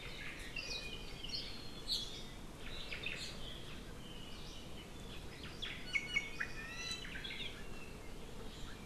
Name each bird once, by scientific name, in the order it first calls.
Myadestes obscurus, Drepanis coccinea